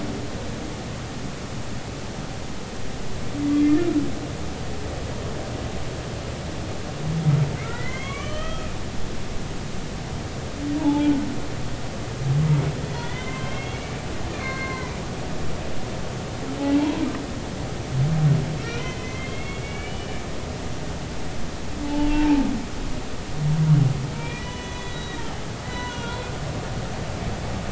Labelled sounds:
7.6	8.7	humpback whale, 1.0 to 3.4 kHz
10.8	11.3	humpback whale, 0.80 to 1.5 kHz
12.9	13.9	humpback whale, 0.96 to 3.8 kHz
14.3	15.0	humpback whale, 0.93 to 4.4 kHz
18.6	20.2	humpback whale, 1.9 to 3.3 kHz
21.8	22.4	humpback whale, 0.80 to 0.96 kHz
24.1	25.3	humpback whale, 0.96 to 6.5 kHz
25.6	26.3	humpback whale, 1.3 to 4.0 kHz

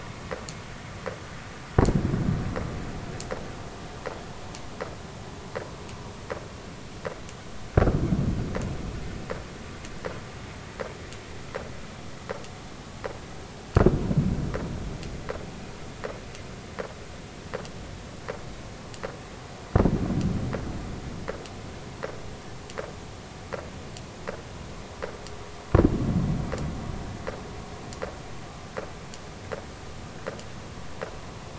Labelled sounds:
7.7	8.0	vessel noise, 1.2 to 1.6 kHz

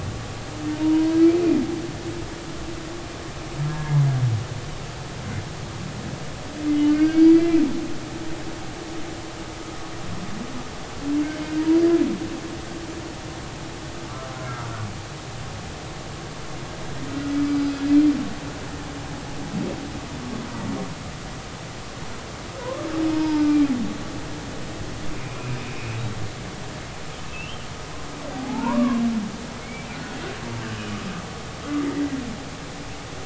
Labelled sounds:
0.7	1.1	humpback whale, 0.90 to 1.0 kHz
3.7	4.0	humpback whale, 1.6 to 1.7 kHz
6.9	7.6	humpback whale, 1.4 to 4.8 kHz
14.4	14.7	humpback whale, 1.3 to 1.5 kHz
17.4	17.7	humpback whale, 4.8 to 4.9 kHz
22.6	23.7	humpback whale, 0.83 to 2.4 kHz
25.1	25.6	humpback whale, 2.3 to 2.7 kHz
27.3	29.0	humpback whale, 0.80 to 3.2 kHz
29.6	30.2	humpback whale, 1.4 to 2.4 kHz
30.7	31.0	humpback whale, 2.8 to 3.0 kHz

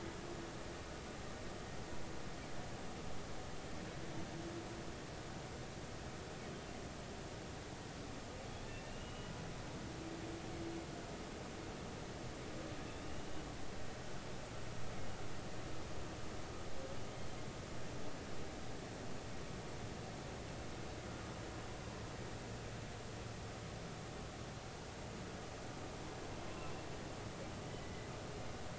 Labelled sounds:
8.9	9.3	humpback whale, 2.7 to 3.0 kHz
26.5	26.7	humpback whale, 0.99 to 1.1 kHz
27.8	28.1	humpback whale, 1.9 to 2.2 kHz

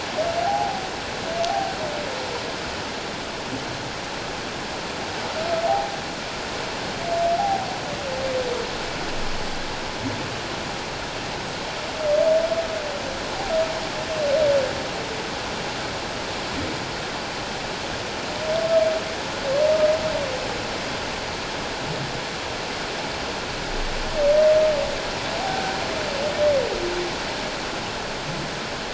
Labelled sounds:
0.5	0.8	humpback whale, 0.78 to 0.88 kHz
1.5	1.7	humpback whale, 0.78 to 0.84 kHz
5.7	6.0	humpback whale, 0.78 to 0.91 kHz
7.4	7.7	humpback whale, 0.78 to 0.88 kHz
25.4	25.8	humpback whale, 0.78 to 1.6 kHz

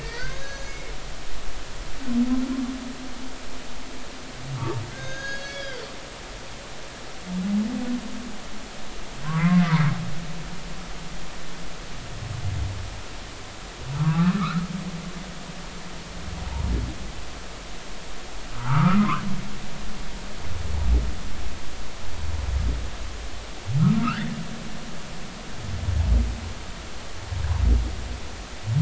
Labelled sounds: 0.0	0.8	humpback whale, 1.6 to 6.6 kHz
4.9	5.8	humpback whale, 1.4 to 6.7 kHz
6.4	6.7	humpback whale, 5.5 to 5.7 kHz
9.2	9.6	humpback whale, 0.93 to 2.2 kHz
14.0	14.4	humpback whale, 0.93 to 1.4 kHz
15.4	15.6	humpback whale, 1.1 to 1.5 kHz
18.5	19.2	humpback whale, 0.83 to 1.7 kHz
24.0	24.4	humpback whale, 1.0 to 2.1 kHz

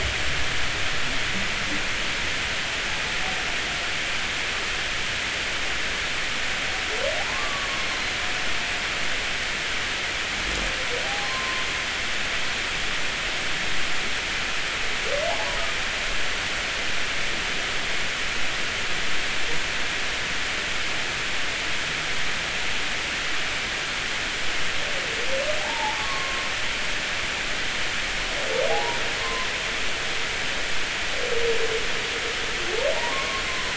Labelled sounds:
7.2	8.2	humpback whale, 0.80 to 4.3 kHz
11.0	11.7	humpback whale, 0.80 to 1.1 kHz
15.3	15.6	humpback whale, 0.80 to 1.0 kHz
25.6	26.5	humpback whale, 0.80 to 1.2 kHz
28.7	29.5	humpback whale, 0.80 to 1.1 kHz
32.9	33.7	humpback whale, 0.80 to 1.2 kHz

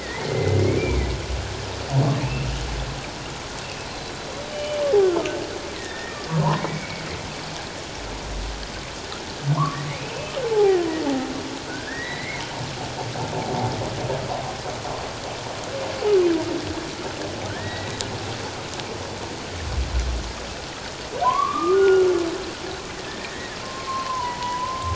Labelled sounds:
0.0	1.1	humpback whale, 1.8 to 2.5 kHz
2.2	2.5	humpback whale, 2.4 to 2.8 kHz
3.9	6.9	humpback whale, 0.84 to 4.2 kHz
9.5	10.8	humpback whale, 0.78 to 2.8 kHz
11.7	12.4	humpback whale, 1.4 to 4.1 kHz
17.6	18.0	humpback whale, 1.7 to 4.0 kHz
21.2	22.1	humpback whale, 0.91 to 2.9 kHz
23.1	24.9	humpback whale, 0.81 to 2.2 kHz

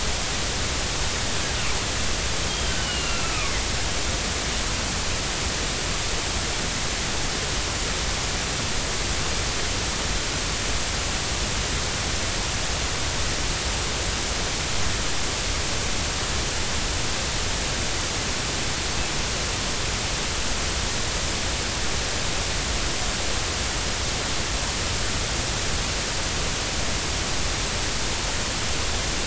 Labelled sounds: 2.5	3.5	killer whale, northern resident, G clan, 1.1 to 3.3 kHz

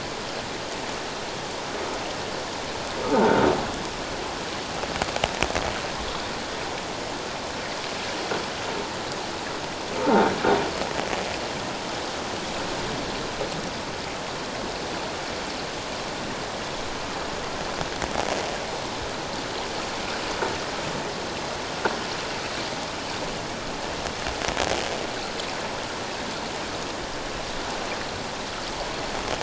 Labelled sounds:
3.1	3.4	croaking sound likely from a nearby submerged object, 1.3 to 1.6 kHz

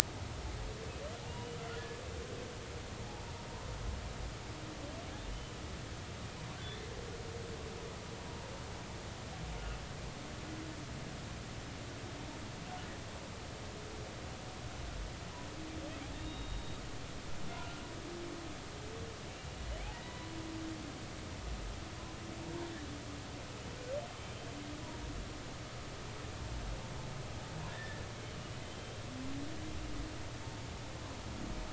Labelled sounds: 1.2	1.6	humpback whale, 0.80 to 3.0 kHz
4.0	4.2	humpback whale, 0.80 to 0.96 kHz
5.3	5.6	humpback whale, 2.9 to 3.1 kHz
8.2	8.5	humpback whale, 0.86 to 0.99 kHz
9.6	9.8	humpback whale, 2.6 to 2.9 kHz
16.1	16.8	humpback whale, 2.8 to 3.9 kHz
17.6	17.8	humpback whale, 1.3 to 1.4 kHz
19.9	20.3	humpback whale, 0.93 to 2.0 kHz
27.7	29.0	humpback whale, 1.6 to 3.2 kHz

